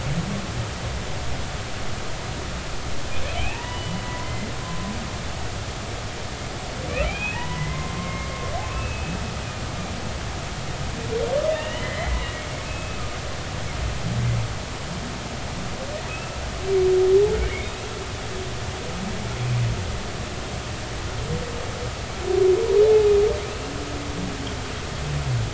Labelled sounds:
3.4	4.5	humpback whale, 0.80 to 3.0 kHz
7.0	8.3	humpback whale, 0.83 to 3.5 kHz
8.7	9.2	humpback whale, 2.4 to 2.8 kHz
11.5	13.0	humpback whale, 1.7 to 3.1 kHz
16.1	17.8	humpback whale, 1.2 to 2.7 kHz
22.9	23.1	humpback whale, 0.80 to 0.90 kHz

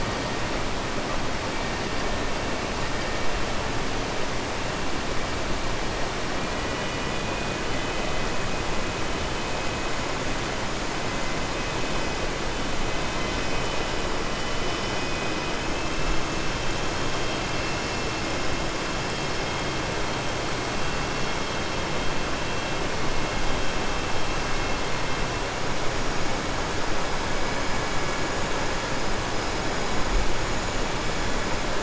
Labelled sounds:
6.4	7.5	killer whale, southern resident, 1.5 to 3.5 kHz

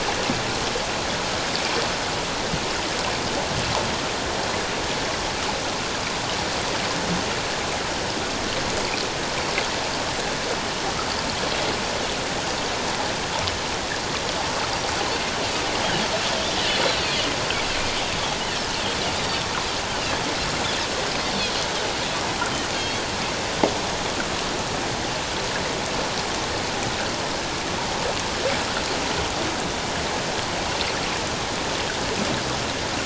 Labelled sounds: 22.7	23.0	Pacific white-sided dolphin, 3.2 to 4.5 kHz

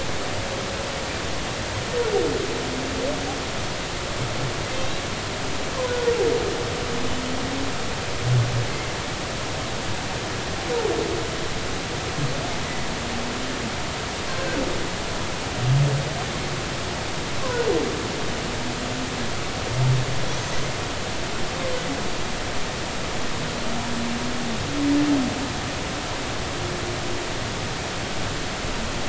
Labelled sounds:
5.9	6.1	humpback whale, 1.4 to 1.5 kHz
8.7	8.9	humpback whale, 2.0 to 2.2 kHz
20.4	20.6	humpback whale, 6.3 to 6.5 kHz

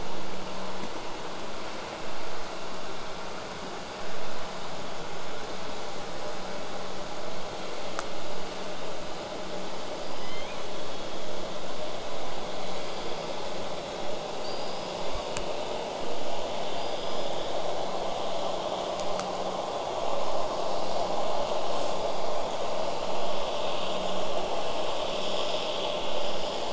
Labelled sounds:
0.0	5.0	vessel noise, 0 to 8.0 kHz
14.4	15.5	killer whale, southern resident, L pod, call S19, 1.1 to 5.2 kHz
16.7	17.5	killer whale, southern resident, 4.6 to 5.2 kHz

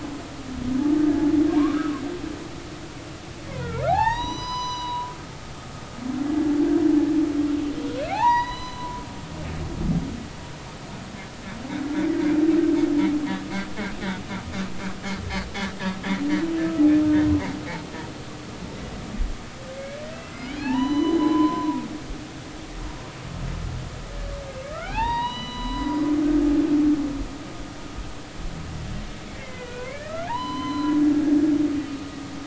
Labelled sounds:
1.6	1.9	humpback whale, 0.86 to 1.7 kHz
3.9	5.1	humpback whale, 0.80 to 6.0 kHz
8.1	9.0	humpback whale, 0.80 to 6.0 kHz
20.2	21.8	humpback whale, 0.80 to 6.0 kHz
24.6	26.0	humpback whale, 0.80 to 6.0 kHz
29.4	31.0	humpback whale, 0.80 to 4.1 kHz

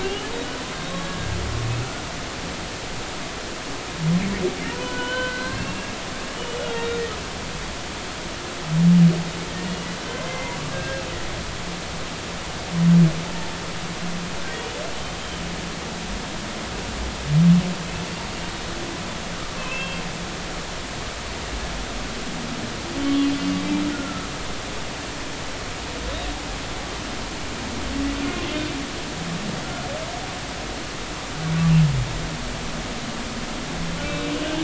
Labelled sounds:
0.0	0.3	humpback whale, 2.7 to 3.0 kHz
0.7	1.3	humpback whale, 1.6 to 3.9 kHz
4.7	6.3	humpback whale, 0.90 to 3.1 kHz
6.6	7.0	humpback whale, 2.6 to 2.9 kHz
9.6	11.0	humpback whale, 1.5 to 2.9 kHz
19.5	20.0	humpback whale, 0.99 to 3.3 kHz
23.0	23.3	humpback whale, 3.0 to 3.1 kHz
23.9	24.3	humpback whale, 1.2 to 1.5 kHz

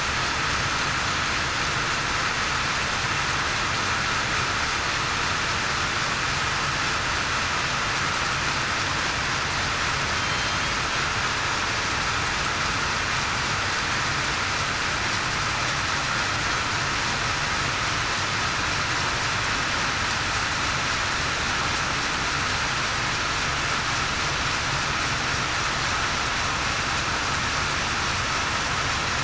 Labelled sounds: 10.1	10.6	killer whale, southern resident, 3.1 to 3.2 kHz

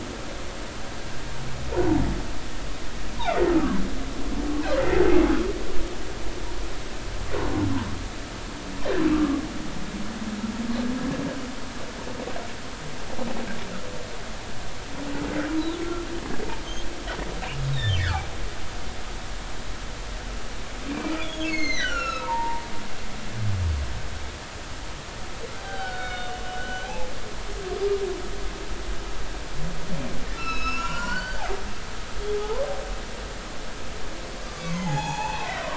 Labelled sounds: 9.1	9.4	humpback whale, 1.1 to 1.3 kHz
17.7	18.0	humpback whale, 2.9 to 4.0 kHz
20.9	22.6	humpback whale, 0.86 to 7.1 kHz
25.6	27.1	humpback whale, 0.80 to 4.7 kHz
30.3	31.4	humpback whale, 0.90 to 7.1 kHz
32.3	32.6	humpback whale, 0.80 to 1.1 kHz
34.4	35.7	humpback whale, 0.80 to 6.9 kHz

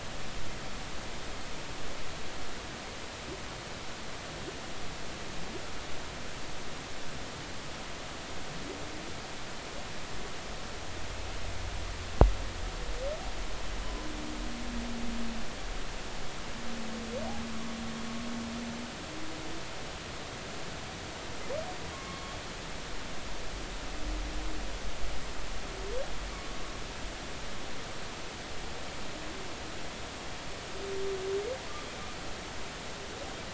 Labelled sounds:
21.9	22.4	humpback whale, 1.0 to 3.3 kHz

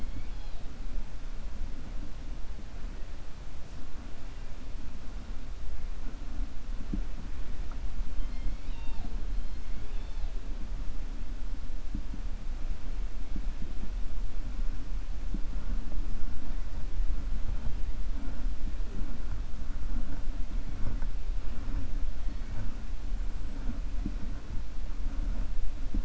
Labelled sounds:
9.6	10.3	killer whale, 1.5 to 5.4 kHz

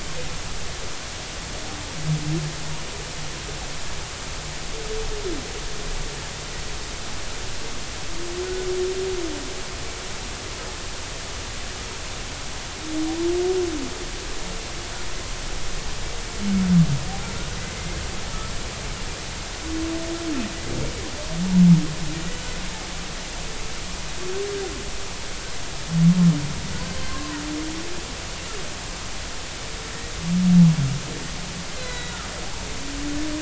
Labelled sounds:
27.1	27.4	humpback whale, 0.90 to 1.1 kHz
31.8	32.2	humpback whale, 1.9 to 4.1 kHz

